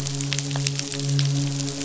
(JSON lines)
{"label": "biophony, midshipman", "recorder": "SoundTrap 500"}